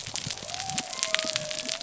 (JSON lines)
{"label": "biophony", "recorder": "SoundTrap 300"}